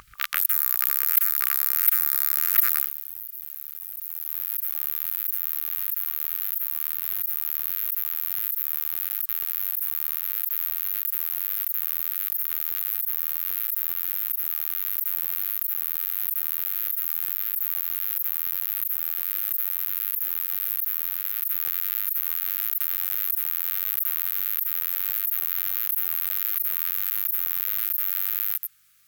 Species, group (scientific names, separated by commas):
Pycnogaster jugicola, Orthoptera